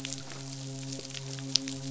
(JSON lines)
{"label": "biophony, midshipman", "recorder": "SoundTrap 500"}